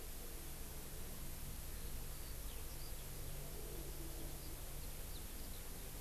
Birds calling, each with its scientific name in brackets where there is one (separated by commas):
Eurasian Skylark (Alauda arvensis)